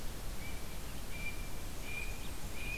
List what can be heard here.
Blue Jay, Blackburnian Warbler